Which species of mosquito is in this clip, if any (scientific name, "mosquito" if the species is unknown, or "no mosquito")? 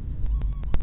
mosquito